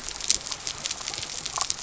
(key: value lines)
label: biophony
recorder: SoundTrap 300